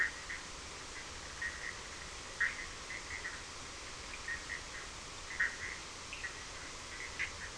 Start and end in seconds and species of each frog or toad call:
0.0	7.5	Boana bischoffi
6.1	6.3	Sphaenorhynchus surdus
Brazil, 9pm

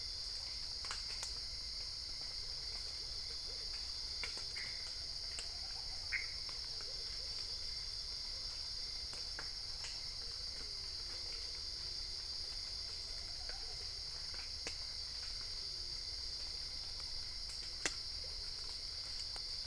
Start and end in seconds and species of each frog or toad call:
6.0	6.4	Pithecopus azureus
Brazil, midnight

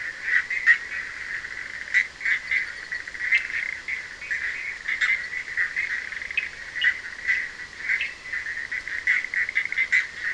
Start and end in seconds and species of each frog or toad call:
0.0	10.3	Boana bischoffi
3.2	3.5	Sphaenorhynchus surdus
6.2	8.2	Sphaenorhynchus surdus
Brazil, ~3am

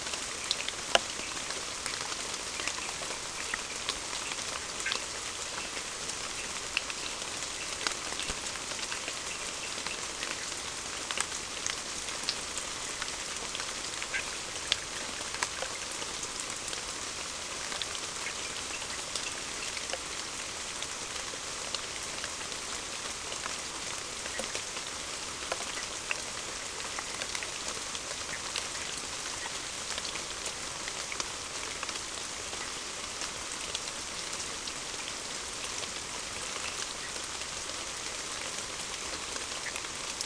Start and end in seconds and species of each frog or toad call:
4.8	5.1	Boana bischoffi
11.2	11.3	Boana bischoffi
14.0	14.3	Boana bischoffi
Brazil, ~8pm

